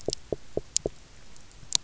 {"label": "biophony, knock", "recorder": "SoundTrap 300"}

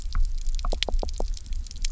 {"label": "biophony, knock", "recorder": "SoundTrap 300"}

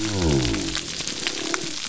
{"label": "biophony", "recorder": "SoundTrap 300"}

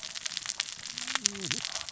{"label": "biophony, cascading saw", "recorder": "SoundTrap 600 or HydroMoth"}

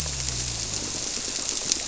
{"label": "biophony", "recorder": "SoundTrap 300"}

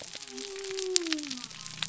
{"label": "biophony", "recorder": "SoundTrap 300"}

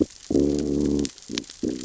{"label": "biophony, growl", "recorder": "SoundTrap 600 or HydroMoth"}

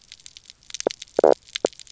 {"label": "biophony, knock croak", "recorder": "SoundTrap 300"}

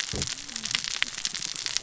{"label": "biophony, cascading saw", "recorder": "SoundTrap 600 or HydroMoth"}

